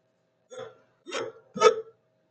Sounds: Sigh